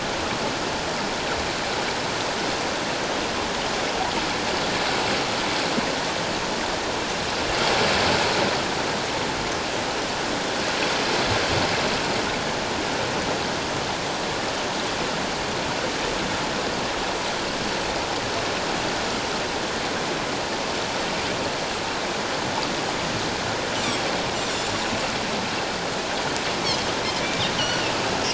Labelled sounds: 24.5	24.9	Pacific white-sided dolphin, 6.9 to 7.1 kHz
27.6	27.9	Pacific white-sided dolphin, 2.6 to 3.1 kHz

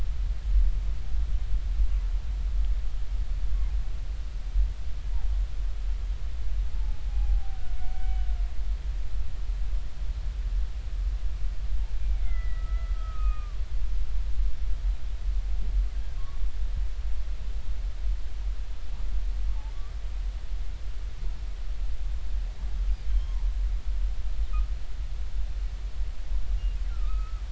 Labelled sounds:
6.7	7.6	humpback whale, 0.80 to 0.93 kHz
7.9	8.3	humpback whale, 2.2 to 3.1 kHz
12.0	13.6	humpback whale, 1.1 to 2.6 kHz
23.1	23.4	humpback whale, 0.80 to 3.3 kHz
26.9	27.4	humpback whale, 1.2 to 2.6 kHz

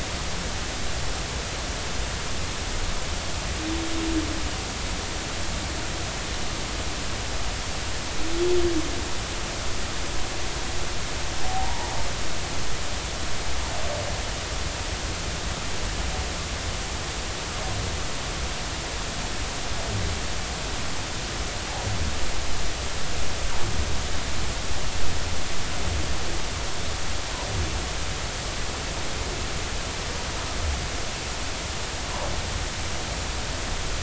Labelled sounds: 11.4	11.9	humpback whale, 0.80 to 0.99 kHz
32.0	32.3	humpback whale, 0.80 to 1.2 kHz

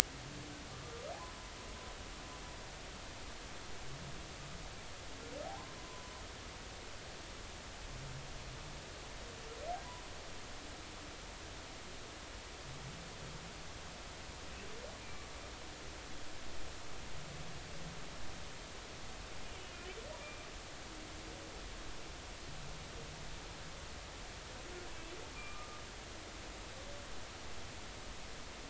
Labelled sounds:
5.5	6.1	humpback whale, 0.80 to 1.1 kHz
20.2	20.5	humpback whale, 2.3 to 2.4 kHz
25.3	25.8	humpback whale, 1.2 to 2.5 kHz

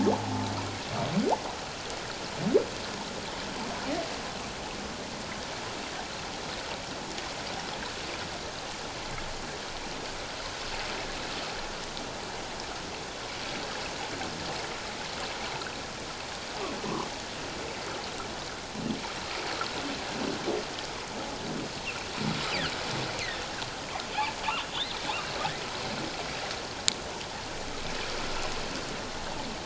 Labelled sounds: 24.7	25.0	humpback whale, 3.3 to 4.3 kHz

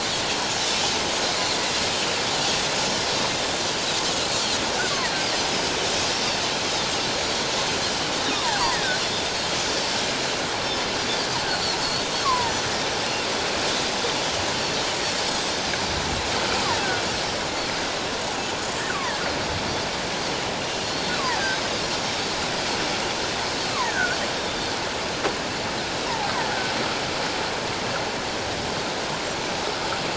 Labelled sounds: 3.2	3.5	Pacific white-sided dolphin, 3.5 to 3.8 kHz
8.2	9.0	killer whale, offshore, call OFF17, 1.4 to 3.9 kHz
8.3	8.6	Pacific white-sided dolphin, 0.78 to 1.3 kHz
9.5	9.8	Pacific white-sided dolphin, 5.9 to 6.1 kHz
11.5	11.8	Pacific white-sided dolphin, 4.2 to 4.7 kHz
12.2	12.5	killer whale, offshore, call OFF17, 0.88 to 1.2 kHz
15.6	16.0	Pacific white-sided dolphin, 5.9 to 6.3 kHz
20.8	21.1	Pacific white-sided dolphin, 4.2 to 4.4 kHz
23.7	24.2	killer whale, offshore, call OFF17, 0.81 to 2.0 kHz
24.4	24.7	Pacific white-sided dolphin, 3.5 to 3.8 kHz

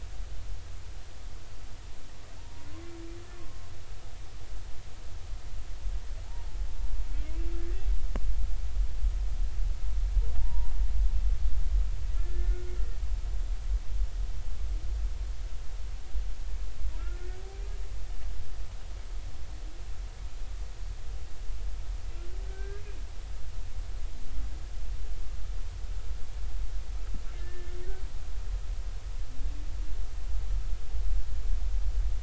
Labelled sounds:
2.4	2.7	humpback whale, 0.83 to 0.99 kHz
3.3	3.7	humpback whale, 1.0 to 1.2 kHz
10.4	10.7	humpback whale, 0.86 to 0.99 kHz
12.2	12.6	humpback whale, 1.7 to 1.8 kHz
22.5	22.8	humpback whale, 1.5 to 1.7 kHz
27.4	27.8	humpback whale, 1.7 to 1.9 kHz

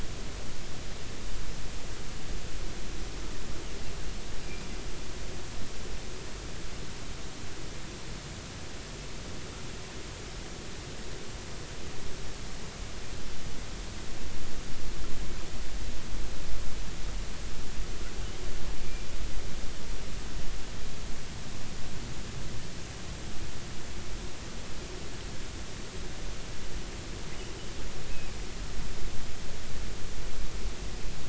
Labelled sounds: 4.5	4.7	killer whale, offshore, 2.3 to 2.5 kHz

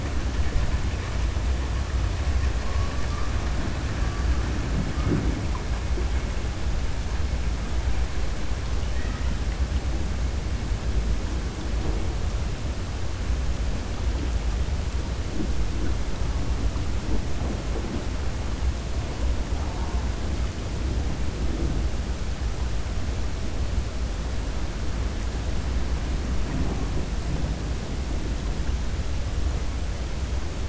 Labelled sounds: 8.8	9.3	killer whale, 1.2 to 2.9 kHz

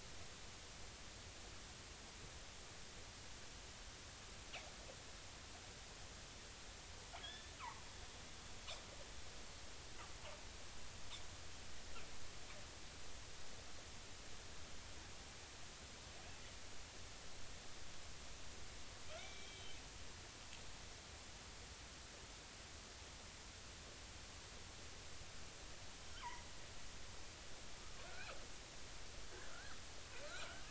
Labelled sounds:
7.2	7.9	killer whale, northern resident, 0.80 to 3.6 kHz
19.2	19.8	killer whale, northern resident, 2.1 to 3.3 kHz
28.0	28.3	killer whale, northern resident, 1.3 to 1.7 kHz
29.3	29.7	killer whale, northern resident, 1.3 to 1.8 kHz

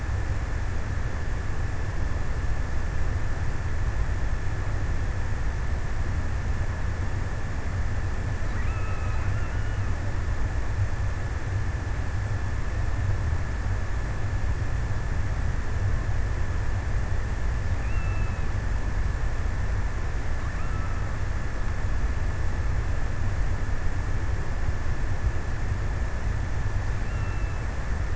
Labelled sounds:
7.9	10.2	killer whale, offshore, 1.1 to 3.0 kHz
17.5	19.0	killer whale, offshore, 1.0 to 3.1 kHz
20.1	21.9	killer whale, offshore, 1.0 to 1.6 kHz
26.5	27.9	killer whale, offshore, 0.93 to 3.2 kHz

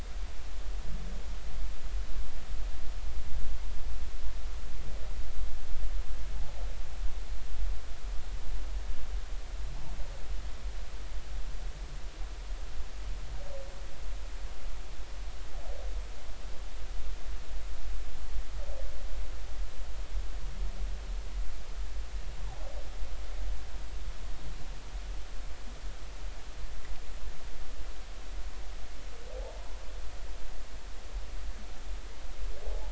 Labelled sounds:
6.3	6.6	humpback whale, 0.80 to 0.90 kHz
32.7	32.9	humpback whale, 0.80 to 0.99 kHz

